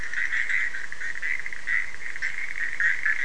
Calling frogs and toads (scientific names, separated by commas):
Boana bischoffi